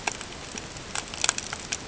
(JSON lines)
{"label": "ambient", "recorder": "HydroMoth"}